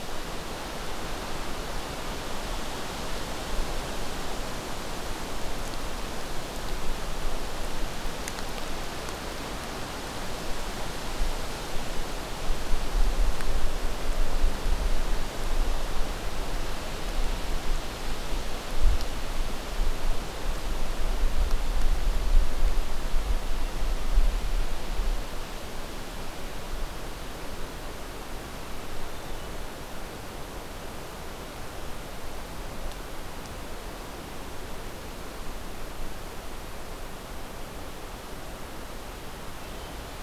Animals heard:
forest ambience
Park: Acadia National Park